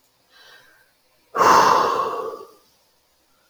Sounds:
Sigh